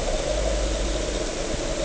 {"label": "anthrophony, boat engine", "recorder": "HydroMoth"}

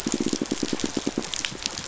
{"label": "biophony, pulse", "recorder": "SoundTrap 500"}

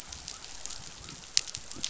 {"label": "biophony", "recorder": "SoundTrap 500"}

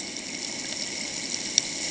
{"label": "ambient", "recorder": "HydroMoth"}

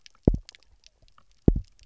{"label": "biophony, double pulse", "recorder": "SoundTrap 300"}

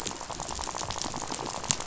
{"label": "biophony, rattle", "recorder": "SoundTrap 500"}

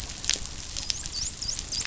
{"label": "biophony, dolphin", "recorder": "SoundTrap 500"}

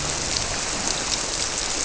{"label": "biophony", "recorder": "SoundTrap 300"}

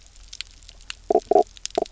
{"label": "biophony, knock croak", "recorder": "SoundTrap 300"}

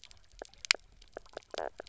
{"label": "biophony, knock croak", "recorder": "SoundTrap 300"}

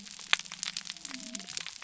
{"label": "biophony", "recorder": "SoundTrap 300"}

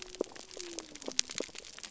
{"label": "biophony", "recorder": "SoundTrap 300"}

